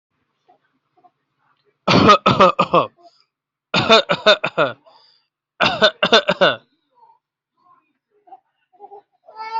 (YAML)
expert_labels:
- quality: good
  cough_type: dry
  dyspnea: false
  wheezing: false
  stridor: false
  choking: false
  congestion: false
  nothing: true
  diagnosis: healthy cough
  severity: pseudocough/healthy cough
age: 26
gender: male
respiratory_condition: false
fever_muscle_pain: false
status: healthy